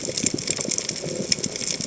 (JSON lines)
{"label": "biophony", "recorder": "HydroMoth"}